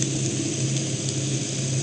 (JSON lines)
{"label": "anthrophony, boat engine", "recorder": "HydroMoth"}